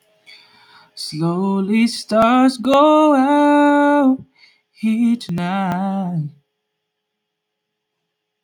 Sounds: Sigh